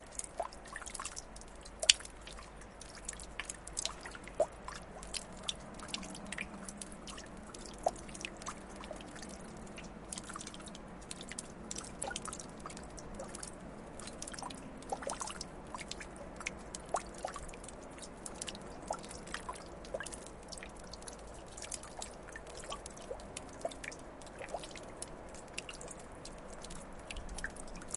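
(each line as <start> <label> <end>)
0.0 Water dripping quietly and unevenly onto ice. 28.0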